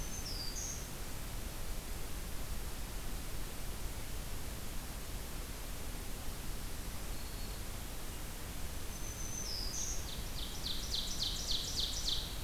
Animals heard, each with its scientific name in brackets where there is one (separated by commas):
Black-throated Green Warbler (Setophaga virens), Ovenbird (Seiurus aurocapilla)